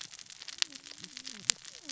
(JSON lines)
{"label": "biophony, cascading saw", "recorder": "SoundTrap 600 or HydroMoth"}